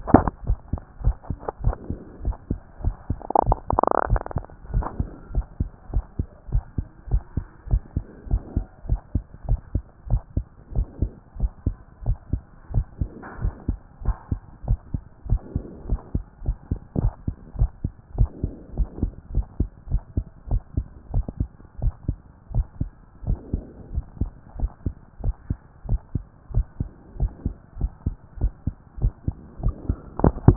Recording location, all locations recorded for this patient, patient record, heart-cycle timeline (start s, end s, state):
tricuspid valve (TV)
aortic valve (AV)+pulmonary valve (PV)+tricuspid valve (TV)+mitral valve (MV)
#Age: Adolescent
#Sex: Male
#Height: 155.0 cm
#Weight: 40.0 kg
#Pregnancy status: False
#Murmur: Absent
#Murmur locations: nan
#Most audible location: nan
#Systolic murmur timing: nan
#Systolic murmur shape: nan
#Systolic murmur grading: nan
#Systolic murmur pitch: nan
#Systolic murmur quality: nan
#Diastolic murmur timing: nan
#Diastolic murmur shape: nan
#Diastolic murmur grading: nan
#Diastolic murmur pitch: nan
#Diastolic murmur quality: nan
#Outcome: Normal
#Campaign: 2014 screening campaign
0.00	5.16	unannotated
5.16	5.34	diastole
5.34	5.46	S1
5.46	5.60	systole
5.60	5.70	S2
5.70	5.92	diastole
5.92	6.04	S1
6.04	6.18	systole
6.18	6.28	S2
6.28	6.52	diastole
6.52	6.64	S1
6.64	6.76	systole
6.76	6.86	S2
6.86	7.10	diastole
7.10	7.22	S1
7.22	7.36	systole
7.36	7.46	S2
7.46	7.70	diastole
7.70	7.82	S1
7.82	7.96	systole
7.96	8.04	S2
8.04	8.30	diastole
8.30	8.42	S1
8.42	8.56	systole
8.56	8.66	S2
8.66	8.88	diastole
8.88	9.00	S1
9.00	9.14	systole
9.14	9.24	S2
9.24	9.48	diastole
9.48	9.60	S1
9.60	9.74	systole
9.74	9.84	S2
9.84	10.10	diastole
10.10	10.22	S1
10.22	10.36	systole
10.36	10.44	S2
10.44	10.74	diastole
10.74	10.86	S1
10.86	11.00	systole
11.00	11.10	S2
11.10	11.40	diastole
11.40	11.52	S1
11.52	11.66	systole
11.66	11.76	S2
11.76	12.06	diastole
12.06	12.18	S1
12.18	12.32	systole
12.32	12.42	S2
12.42	12.74	diastole
12.74	12.86	S1
12.86	13.00	systole
13.00	13.10	S2
13.10	13.42	diastole
13.42	13.54	S1
13.54	13.68	systole
13.68	13.78	S2
13.78	14.04	diastole
14.04	14.16	S1
14.16	14.30	systole
14.30	14.40	S2
14.40	14.66	diastole
14.66	14.78	S1
14.78	14.92	systole
14.92	15.02	S2
15.02	15.28	diastole
15.28	15.40	S1
15.40	15.54	systole
15.54	15.64	S2
15.64	15.88	diastole
15.88	16.00	S1
16.00	16.14	systole
16.14	16.24	S2
16.24	16.46	diastole
16.46	16.56	S1
16.56	16.70	systole
16.70	16.80	S2
16.80	16.98	diastole
16.98	17.12	S1
17.12	17.26	systole
17.26	17.36	S2
17.36	17.58	diastole
17.58	17.70	S1
17.70	17.84	systole
17.84	17.92	S2
17.92	18.16	diastole
18.16	18.30	S1
18.30	18.42	systole
18.42	18.52	S2
18.52	18.76	diastole
18.76	18.88	S1
18.88	19.02	systole
19.02	19.12	S2
19.12	19.34	diastole
19.34	19.46	S1
19.46	19.58	systole
19.58	19.70	S2
19.70	19.90	diastole
19.90	20.02	S1
20.02	20.16	systole
20.16	20.26	S2
20.26	20.50	diastole
20.50	20.62	S1
20.62	20.76	systole
20.76	20.86	S2
20.86	21.14	diastole
21.14	21.26	S1
21.26	21.40	systole
21.40	21.48	S2
21.48	21.82	diastole
21.82	21.94	S1
21.94	22.08	systole
22.08	22.16	S2
22.16	22.54	diastole
22.54	22.66	S1
22.66	22.80	systole
22.80	22.90	S2
22.90	23.26	diastole
23.26	23.38	S1
23.38	23.52	systole
23.52	23.62	S2
23.62	23.94	diastole
23.94	24.06	S1
24.06	24.20	systole
24.20	24.30	S2
24.30	24.58	diastole
24.58	24.70	S1
24.70	24.84	systole
24.84	24.94	S2
24.94	25.24	diastole
25.24	25.36	S1
25.36	25.48	systole
25.48	25.58	S2
25.58	25.88	diastole
25.88	26.00	S1
26.00	26.14	systole
26.14	26.24	S2
26.24	26.54	diastole
26.54	26.66	S1
26.66	26.80	systole
26.80	26.88	S2
26.88	27.20	diastole
27.20	27.32	S1
27.32	27.44	systole
27.44	27.54	S2
27.54	27.80	diastole
27.80	27.92	S1
27.92	28.06	systole
28.06	28.16	S2
28.16	28.40	diastole
28.40	28.52	S1
28.52	28.66	systole
28.66	28.76	S2
28.76	29.02	diastole
29.02	29.12	S1
29.12	29.26	systole
29.26	29.34	S2
29.34	29.62	diastole
29.62	29.74	S1
29.74	29.88	systole
29.88	29.98	S2
29.98	30.20	diastole
30.20	30.56	unannotated